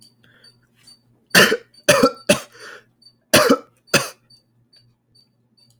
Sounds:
Cough